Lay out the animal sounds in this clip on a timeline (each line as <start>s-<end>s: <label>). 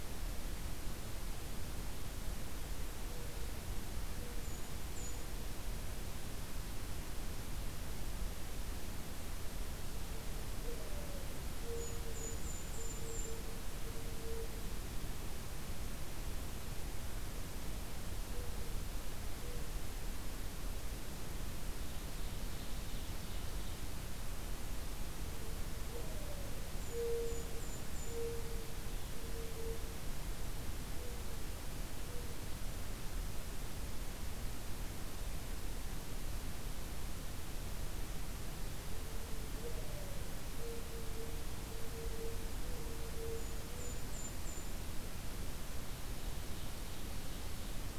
4.3s-5.4s: Golden-crowned Kinglet (Regulus satrapa)
10.6s-15.1s: Mourning Dove (Zenaida macroura)
11.6s-13.5s: Golden-crowned Kinglet (Regulus satrapa)
21.7s-23.8s: Ovenbird (Seiurus aurocapilla)
25.7s-31.6s: Mourning Dove (Zenaida macroura)
26.6s-28.3s: Golden-crowned Kinglet (Regulus satrapa)
38.7s-44.0s: Mourning Dove (Zenaida macroura)
43.2s-44.8s: Golden-crowned Kinglet (Regulus satrapa)